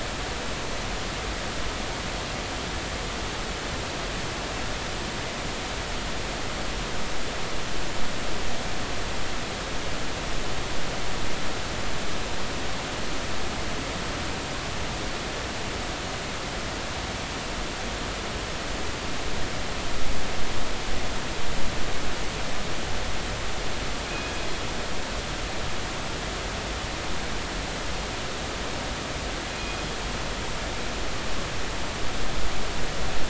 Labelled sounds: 29.5	29.8	killer whale, northern resident, 2.4 to 2.5 kHz

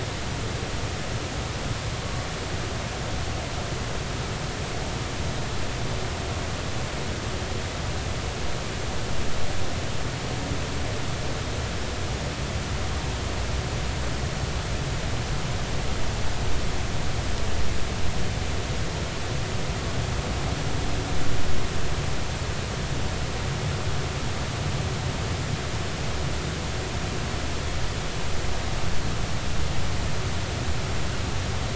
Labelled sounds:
2.0	2.3	humpback whale, 1.1 to 1.2 kHz

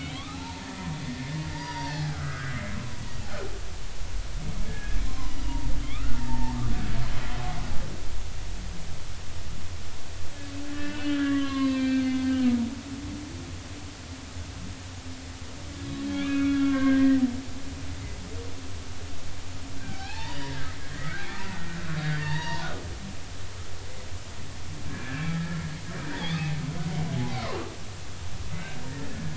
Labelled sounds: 0.0	2.7	humpback whale, 0.80 to 4.9 kHz
4.7	5.3	humpback whale, 0.96 to 1.8 kHz
5.8	6.7	humpback whale, 0.80 to 2.8 kHz
10.7	12.1	humpback whale, 0.99 to 4.6 kHz
16.0	17.2	humpback whale, 1.0 to 3.6 kHz
19.8	20.6	humpback whale, 0.80 to 4.9 kHz
21.3	22.7	humpback whale, 0.80 to 4.8 kHz
24.9	26.4	humpback whale, 1.5 to 3.6 kHz
27.1	27.4	humpback whale, 0.80 to 1.0 kHz
29.1	29.3	humpback whale, 1.6 to 1.8 kHz

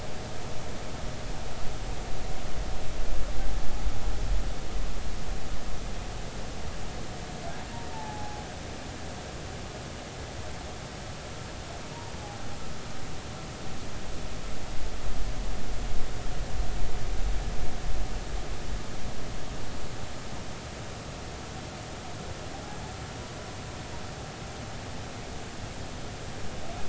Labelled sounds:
7.9	8.4	humpback whale, 0.80 to 0.93 kHz
12.2	12.4	humpback whale, 0.80 to 0.86 kHz

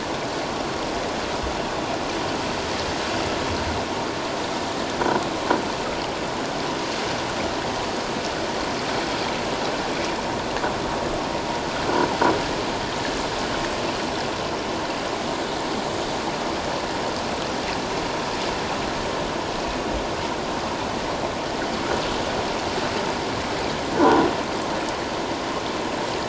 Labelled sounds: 24.0	24.3	croaking sound likely from a nearby submerged object, 0.78 to 1.6 kHz

